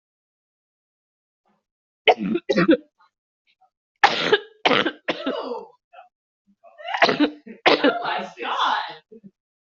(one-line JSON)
{"expert_labels": [{"quality": "poor", "cough_type": "wet", "dyspnea": false, "wheezing": false, "stridor": false, "choking": false, "congestion": false, "nothing": true, "diagnosis": "lower respiratory tract infection", "severity": "mild"}], "age": 39, "gender": "female", "respiratory_condition": true, "fever_muscle_pain": false, "status": "symptomatic"}